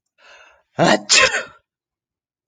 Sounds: Sneeze